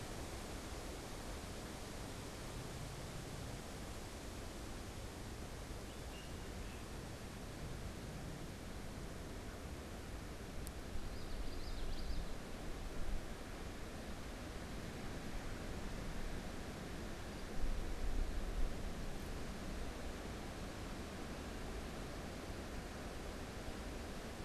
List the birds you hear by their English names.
Great Crested Flycatcher, Common Yellowthroat